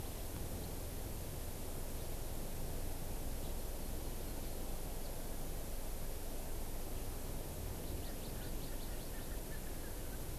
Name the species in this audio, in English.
Hawaii Amakihi, Erckel's Francolin